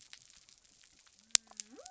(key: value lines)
label: biophony
recorder: SoundTrap 300